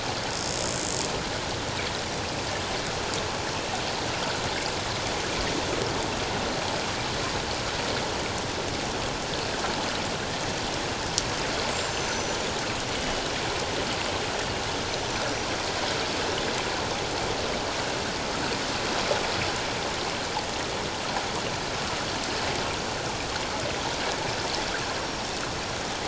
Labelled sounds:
11.9	12.4	killer whale, 5.9 to 7.2 kHz
14.9	15.5	killer whale, 5.7 to 6.2 kHz
25.0	25.4	killer whale, 5.4 to 5.6 kHz

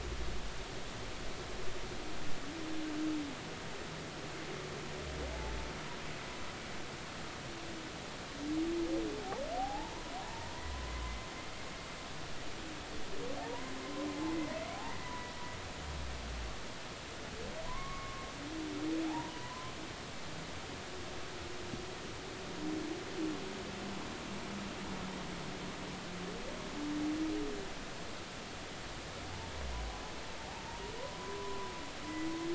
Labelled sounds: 9.6	10.5	humpback whale, 0.80 to 1.1 kHz
13.4	13.7	humpback whale, 0.80 to 1.1 kHz
14.8	15.3	humpback whale, 0.93 to 2.0 kHz
17.6	18.3	humpback whale, 0.96 to 2.2 kHz
19.1	19.7	humpback whale, 0.80 to 1.1 kHz
31.2	31.7	humpback whale, 0.96 to 1.1 kHz

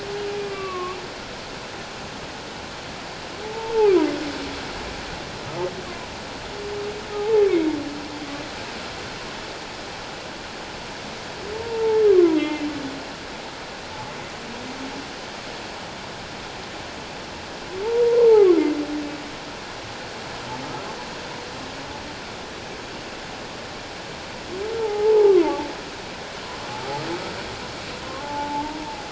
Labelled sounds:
0.5	1.0	humpback whale, 1.0 to 2.8 kHz
3.4	3.9	humpback whale, 0.78 to 0.97 kHz
7.1	7.4	humpback whale, 0.78 to 0.94 kHz
11.5	12.7	humpback whale, 0.81 to 2.2 kHz
17.8	18.6	humpback whale, 0.78 to 1.4 kHz
24.7	25.7	humpback whale, 0.78 to 1.4 kHz
28.2	28.8	humpback whale, 0.81 to 0.97 kHz

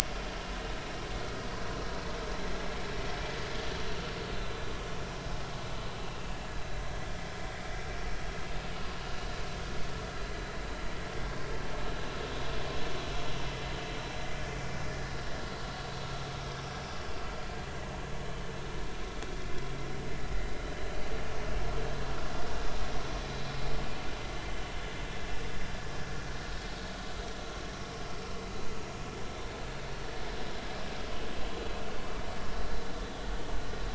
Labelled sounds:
0.1	0.3	vessel noise, 3.1 to 3.3 kHz

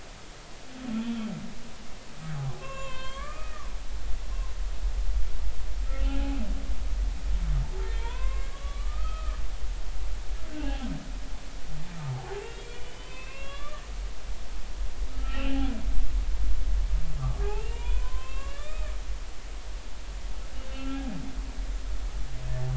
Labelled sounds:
2.4	3.7	humpback whale, 0.80 to 4.4 kHz
6.0	6.5	humpback whale, 1.3 to 3.1 kHz
7.8	9.4	humpback whale, 0.86 to 4.2 kHz
10.5	10.9	humpback whale, 0.80 to 2.8 kHz
12.0	13.8	humpback whale, 0.80 to 4.7 kHz
14.4	15.7	humpback whale, 0.80 to 3.1 kHz
17.4	18.9	humpback whale, 0.90 to 4.0 kHz
20.7	21.0	humpback whale, 1.3 to 2.8 kHz

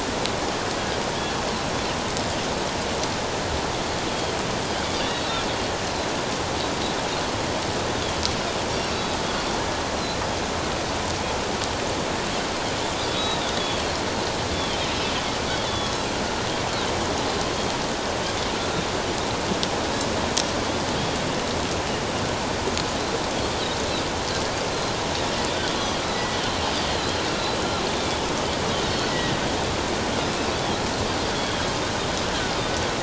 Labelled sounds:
4.1	4.4	Pacific white-sided dolphin, 3.1 to 3.4 kHz
5.1	5.4	Pacific white-sided dolphin, 3.7 to 4.1 kHz
8.7	9.0	Pacific white-sided dolphin, 4.5 to 5.6 kHz
12.9	14.8	Pacific white-sided dolphin, 3.0 to 3.9 kHz
15.6	15.9	Pacific white-sided dolphin, 3.3 to 3.6 kHz
18.5	18.8	Pacific white-sided dolphin, 1.3 to 1.5 kHz
24.7	26.4	Pacific white-sided dolphin, 1.9 to 4.2 kHz
28.8	29.4	Pacific white-sided dolphin, 1.8 to 4.5 kHz
31.3	31.6	Pacific white-sided dolphin, 3.2 to 3.4 kHz

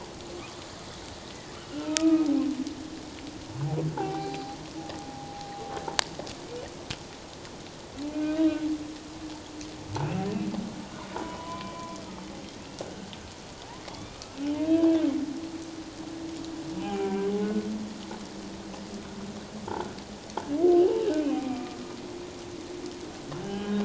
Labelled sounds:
0.3	0.6	humpback whale, 1.1 to 1.3 kHz
1.6	2.3	humpback whale, 1.2 to 3.1 kHz
3.9	4.6	humpback whale, 0.78 to 4.1 kHz
5.1	5.5	humpback whale, 0.78 to 0.94 kHz
8.1	8.6	humpback whale, 1.5 to 2.9 kHz
11.1	11.9	humpback whale, 0.84 to 3.1 kHz
12.8	14.3	humpback whale, 1.5 to 3.7 kHz
14.6	14.9	humpback whale, 1.5 to 1.7 kHz
16.8	17.7	humpback whale, 0.78 to 3.1 kHz
20.8	21.7	humpback whale, 2.3 to 3.1 kHz
23.4	23.8	humpback whale, 1.6 to 3.2 kHz

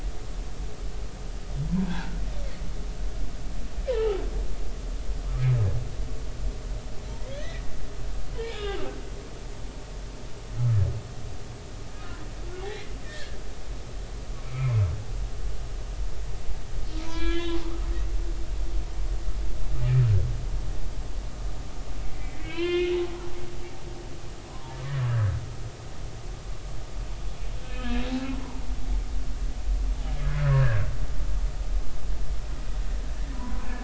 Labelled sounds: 1.9	2.2	humpback whale, 1.3 to 1.7 kHz
4.0	4.2	humpback whale, 1.2 to 3.0 kHz
4.9	5.2	humpback whale, 0.80 to 1.0 kHz
7.2	7.6	humpback whale, 1.6 to 2.6 kHz
8.5	8.9	humpback whale, 1.5 to 3.8 kHz
10.6	10.8	humpback whale, 1.2 to 1.4 kHz
12.6	13.4	humpback whale, 1.6 to 2.2 kHz
14.4	14.7	humpback whale, 1.2 to 2.6 kHz
17.1	17.9	humpback whale, 1.1 to 4.1 kHz
22.1	22.9	humpback whale, 0.96 to 4.3 kHz
24.4	25.3	humpback whale, 0.86 to 1.8 kHz
27.7	28.6	humpback whale, 0.86 to 1.8 kHz
30.4	30.8	humpback whale, 1.5 to 1.9 kHz
33.3	33.7	humpback whale, 0.93 to 1.1 kHz

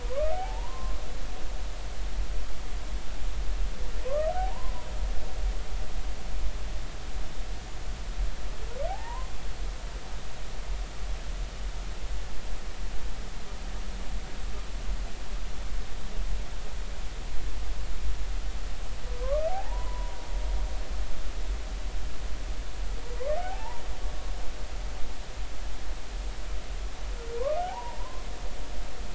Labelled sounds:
0.0	1.0	humpback whale, 0.80 to 2.4 kHz
4.0	4.9	humpback whale, 0.90 to 1.3 kHz
8.9	9.3	humpback whale, 0.80 to 1.1 kHz
19.2	20.2	humpback whale, 0.80 to 1.3 kHz
23.4	23.8	humpback whale, 0.80 to 1.0 kHz
27.4	28.3	humpback whale, 0.80 to 1.3 kHz

